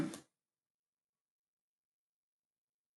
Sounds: Cough